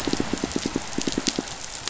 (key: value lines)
label: biophony, pulse
recorder: SoundTrap 500